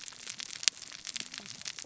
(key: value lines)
label: biophony, cascading saw
recorder: SoundTrap 600 or HydroMoth